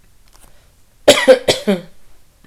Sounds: Cough